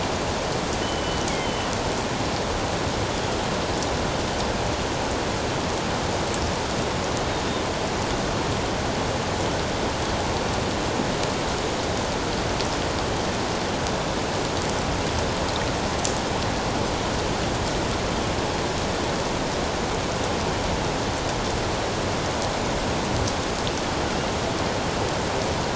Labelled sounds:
0.8	1.7	killer whale, northern resident, G clan, 2.9 to 3.4 kHz

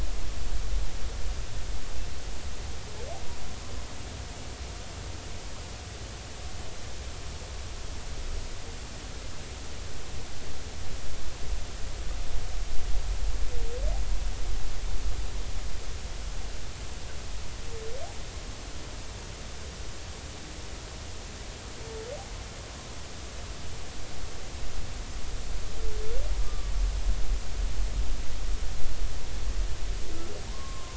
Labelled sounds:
26.4	26.7	humpback whale, 1.1 to 1.2 kHz
30.5	30.9	humpback whale, 0.90 to 1.2 kHz

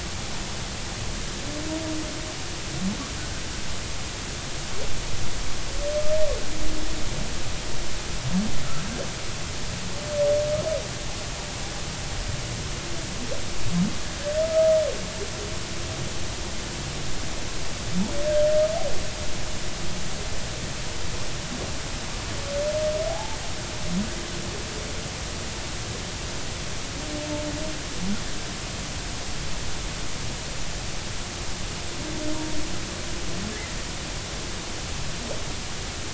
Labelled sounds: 23.1	23.4	humpback whale, 0.80 to 0.93 kHz

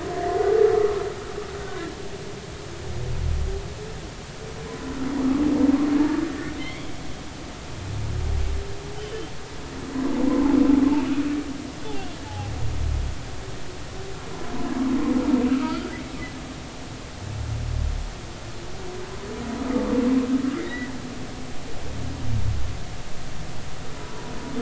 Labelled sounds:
0.1	0.5	humpback whale, 1.6 to 2.1 kHz
4.7	5.0	humpback whale, 0.96 to 1.1 kHz
6.6	6.9	humpback whale, 2.0 to 3.4 kHz
10.0	10.5	humpback whale, 0.90 to 3.2 kHz
12.2	12.5	humpback whale, 0.80 to 0.93 kHz
15.5	15.8	humpback whale, 1.2 to 1.4 kHz
20.6	20.9	humpback whale, 1.8 to 2.2 kHz

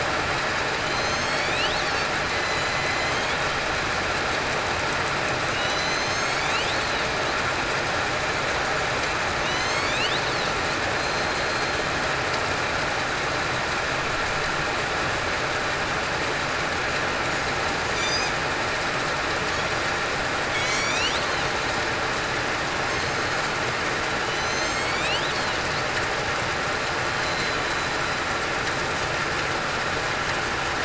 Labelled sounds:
0.9	1.4	killer whale, southern resident, 6.1 to 6.7 kHz
2.6	3.0	killer whale, southern resident, 2.0 to 2.1 kHz
5.6	6.4	killer whale, southern resident, 3.7 to 6.6 kHz
8.4	8.8	killer whale, southern resident, 7.9 to 8.0 kHz
9.4	10.0	killer whale, southern resident, 1.9 to 6.7 kHz
11.0	11.7	killer whale, southern resident, 4.1 to 4.3 kHz
17.9	18.3	killer whale, southern resident, 5.8 to 6.3 kHz
20.5	21.0	killer whale, southern resident, 7.7 to 8.0 kHz
24.3	25.0	killer whale, southern resident, 3.9 to 7.9 kHz
27.1	27.5	killer whale, southern resident, 4.17 to 4.24 kHz

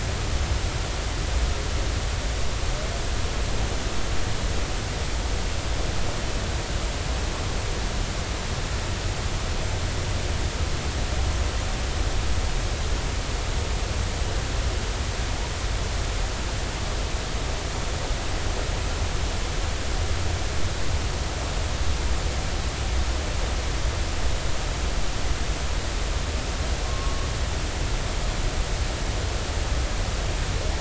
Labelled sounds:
26.8	27.3	humpback whale, 1.0 to 1.2 kHz

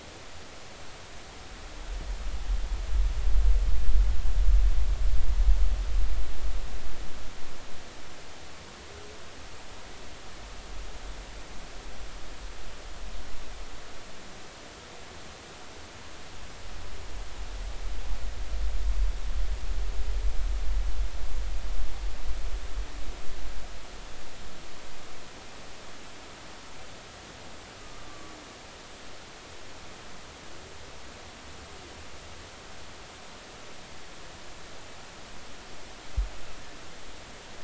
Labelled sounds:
27.8	28.3	humpback whale, 1.1 to 1.2 kHz

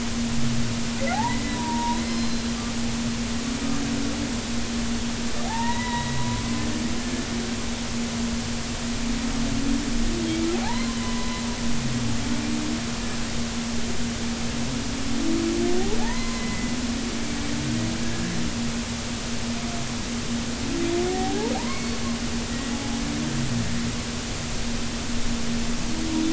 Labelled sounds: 1.1	2.5	humpback whale, 0.80 to 5.2 kHz
5.5	7.3	humpback whale, 0.80 to 4.0 kHz
10.6	11.4	humpback whale, 0.80 to 2.1 kHz
16.0	16.7	humpback whale, 0.80 to 2.1 kHz
21.1	22.0	humpback whale, 0.80 to 4.5 kHz

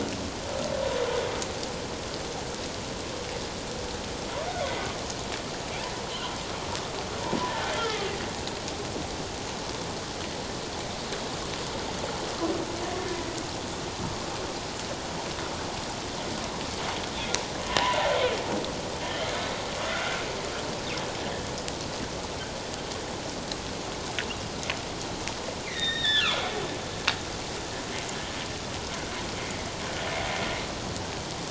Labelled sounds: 7.8	8.1	humpback whale, 1.2 to 1.4 kHz
19.8	20.1	humpback whale, 1.1 to 1.5 kHz
25.7	26.4	humpback whale, 1.1 to 4.0 kHz

